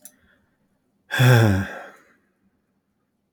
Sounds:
Sigh